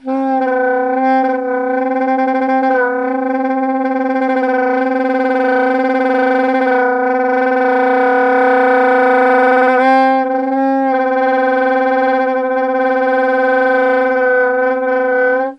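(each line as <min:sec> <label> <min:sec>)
0:00.0 A saxophone plays in an unsteady pattern with varying levels of distortion. 0:15.5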